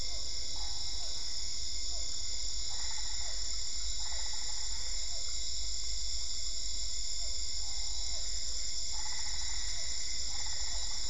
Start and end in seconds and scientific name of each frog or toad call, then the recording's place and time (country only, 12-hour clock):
0.0	5.4	Physalaemus cuvieri
2.6	5.2	Boana albopunctata
7.1	10.9	Physalaemus cuvieri
8.9	11.0	Boana albopunctata
Brazil, 8:30pm